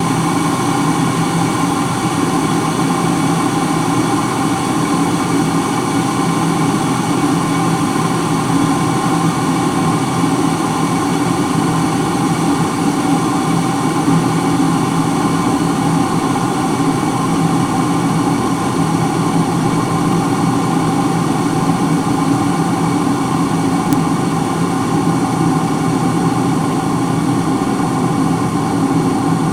Is this an airport?
no